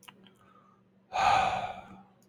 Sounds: Sigh